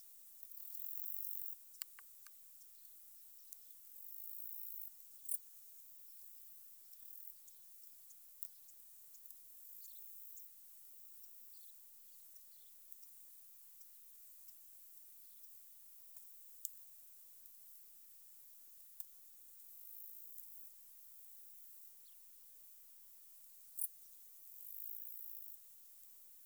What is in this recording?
Saga hellenica, an orthopteran